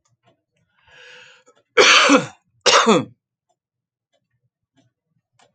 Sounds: Cough